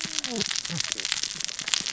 {"label": "biophony, cascading saw", "recorder": "SoundTrap 600 or HydroMoth"}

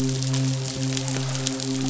{"label": "biophony, midshipman", "recorder": "SoundTrap 500"}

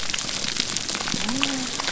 {"label": "biophony", "recorder": "SoundTrap 300"}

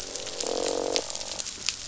{"label": "biophony, croak", "recorder": "SoundTrap 500"}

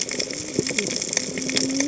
{"label": "biophony, cascading saw", "recorder": "HydroMoth"}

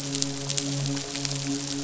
{"label": "biophony, midshipman", "recorder": "SoundTrap 500"}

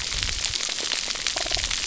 {"label": "biophony", "recorder": "SoundTrap 300"}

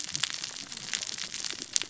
{"label": "biophony, cascading saw", "recorder": "SoundTrap 600 or HydroMoth"}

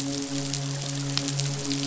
{"label": "biophony, midshipman", "recorder": "SoundTrap 500"}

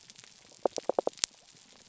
{"label": "biophony", "recorder": "SoundTrap 300"}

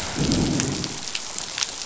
{"label": "biophony, growl", "recorder": "SoundTrap 500"}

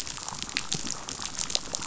{"label": "biophony, chatter", "recorder": "SoundTrap 500"}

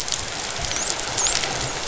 {"label": "biophony, dolphin", "recorder": "SoundTrap 500"}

